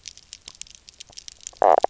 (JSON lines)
{"label": "biophony, knock croak", "recorder": "SoundTrap 300"}